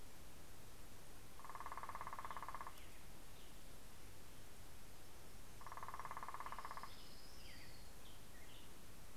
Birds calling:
Orange-crowned Warbler (Leiothlypis celata)
Western Tanager (Piranga ludoviciana)

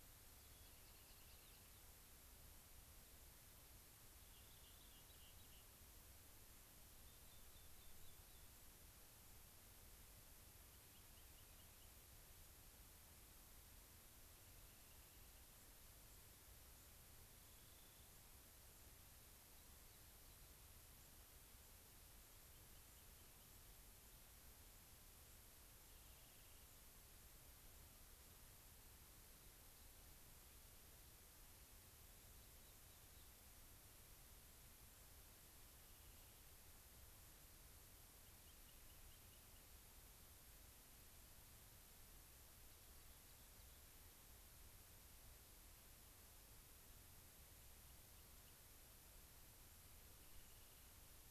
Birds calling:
Rock Wren (Salpinctes obsoletus)
White-crowned Sparrow (Zonotrichia leucophrys)

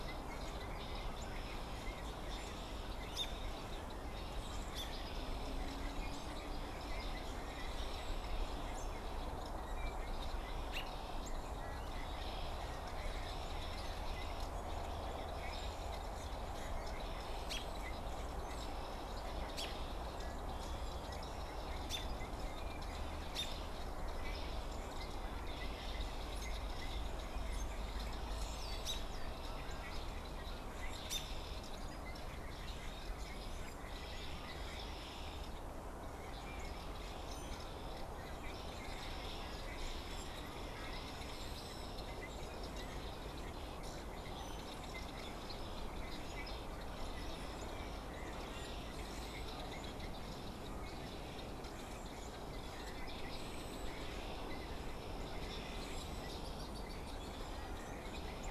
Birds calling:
unidentified bird
American Robin (Turdus migratorius)
Red-winged Blackbird (Agelaius phoeniceus)

